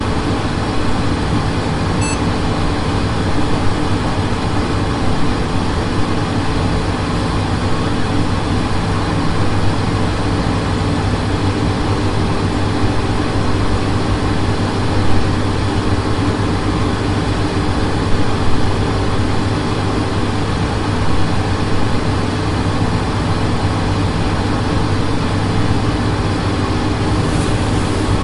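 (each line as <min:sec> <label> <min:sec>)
0:00.0 A deep hum. 0:28.2
0:01.8 A high-pitched beeping sound from a computer booting up. 0:02.4
0:26.2 An electric buzzing sound. 0:28.2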